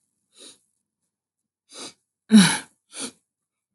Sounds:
Sniff